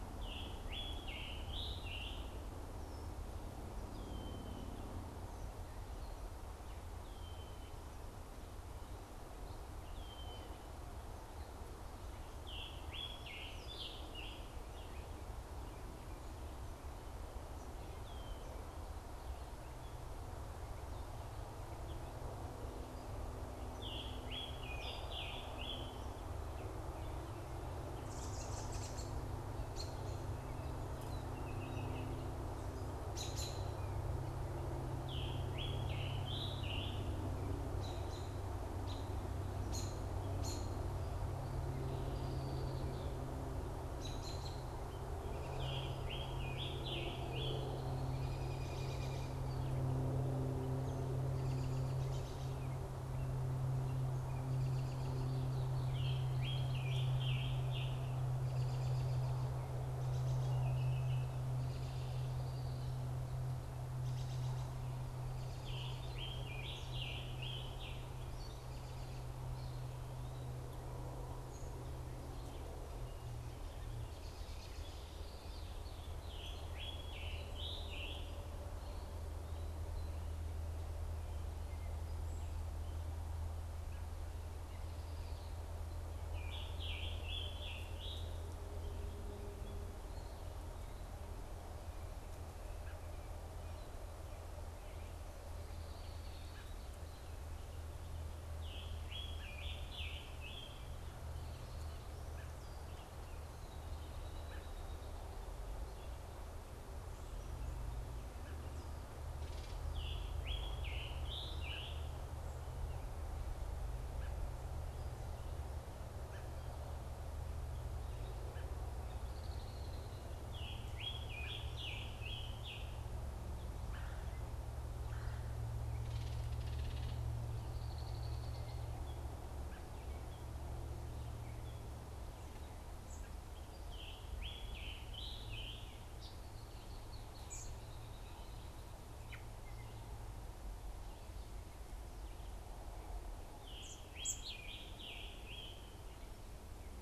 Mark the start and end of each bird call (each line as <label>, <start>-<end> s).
Scarlet Tanager (Piranga olivacea), 0.0-2.5 s
Red-winged Blackbird (Agelaius phoeniceus), 3.9-10.6 s
Scarlet Tanager (Piranga olivacea), 12.3-14.8 s
Red-winged Blackbird (Agelaius phoeniceus), 17.9-18.5 s
Scarlet Tanager (Piranga olivacea), 23.6-26.2 s
American Robin (Turdus migratorius), 27.9-29.3 s
American Robin (Turdus migratorius), 29.6-34.0 s
Baltimore Oriole (Icterus galbula), 31.0-32.5 s
Scarlet Tanager (Piranga olivacea), 34.9-37.4 s
American Robin (Turdus migratorius), 37.7-40.8 s
Red-winged Blackbird (Agelaius phoeniceus), 41.9-43.6 s
American Robin (Turdus migratorius), 43.8-44.7 s
Scarlet Tanager (Piranga olivacea), 45.5-47.8 s
Red-winged Blackbird (Agelaius phoeniceus), 47.3-48.6 s
American Robin (Turdus migratorius), 48.0-55.5 s
Scarlet Tanager (Piranga olivacea), 55.7-58.3 s
American Robin (Turdus migratorius), 58.4-60.5 s
Baltimore Oriole (Icterus galbula), 60.5-61.3 s
American Robin (Turdus migratorius), 61.5-65.8 s
Scarlet Tanager (Piranga olivacea), 65.5-68.2 s
American Robin (Turdus migratorius), 68.3-69.3 s
Scarlet Tanager (Piranga olivacea), 76.1-78.5 s
Scarlet Tanager (Piranga olivacea), 86.3-88.1 s
American Robin (Turdus migratorius), 96.5-96.7 s
Scarlet Tanager (Piranga olivacea), 98.3-100.9 s
American Robin (Turdus migratorius), 102.2-108.6 s
Scarlet Tanager (Piranga olivacea), 109.8-112.3 s
American Robin (Turdus migratorius), 112.7-116.5 s
Red-winged Blackbird (Agelaius phoeniceus), 118.8-120.3 s
Scarlet Tanager (Piranga olivacea), 120.4-122.9 s
Red-bellied Woodpecker (Melanerpes carolinus), 123.7-125.6 s
Red-winged Blackbird (Agelaius phoeniceus), 127.5-128.9 s
American Robin (Turdus migratorius), 132.9-133.7 s
Scarlet Tanager (Piranga olivacea), 133.7-136.1 s
unidentified bird, 136.2-136.4 s
unidentified bird, 137.4-137.8 s
American Robin (Turdus migratorius), 139.1-139.6 s
Scarlet Tanager (Piranga olivacea), 143.4-146.0 s
American Robin (Turdus migratorius), 143.8-144.5 s